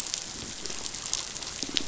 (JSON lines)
{"label": "biophony, pulse", "recorder": "SoundTrap 500"}